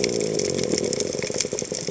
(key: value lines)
label: biophony
recorder: HydroMoth